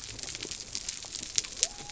{"label": "biophony", "recorder": "SoundTrap 300"}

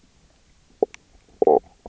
{"label": "biophony, knock croak", "recorder": "SoundTrap 300"}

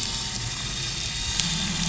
{"label": "anthrophony, boat engine", "recorder": "SoundTrap 500"}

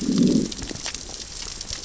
{"label": "biophony, growl", "recorder": "SoundTrap 600 or HydroMoth"}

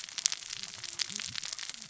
{"label": "biophony, cascading saw", "recorder": "SoundTrap 600 or HydroMoth"}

